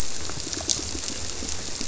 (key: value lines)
label: biophony, squirrelfish (Holocentrus)
recorder: SoundTrap 300

label: biophony
recorder: SoundTrap 300